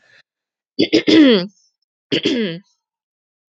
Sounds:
Throat clearing